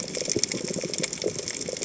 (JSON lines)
{"label": "biophony, chatter", "recorder": "HydroMoth"}